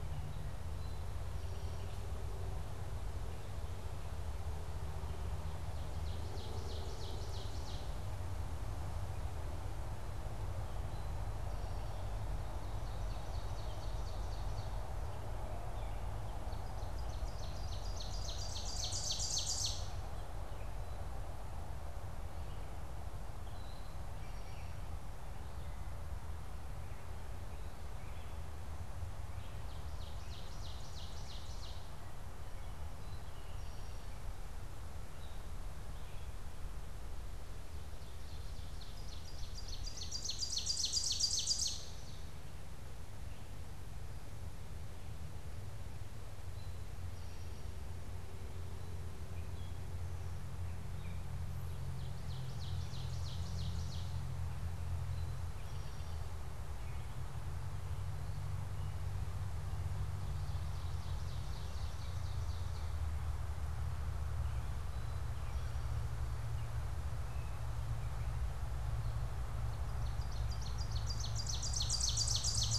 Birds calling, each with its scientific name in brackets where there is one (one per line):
Ovenbird (Seiurus aurocapilla)
Eastern Towhee (Pipilo erythrophthalmus)